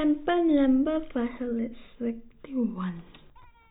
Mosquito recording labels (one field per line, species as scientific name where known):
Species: no mosquito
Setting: cup